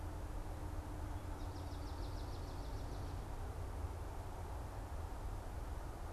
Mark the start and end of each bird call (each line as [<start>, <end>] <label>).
[1.02, 3.12] Swamp Sparrow (Melospiza georgiana)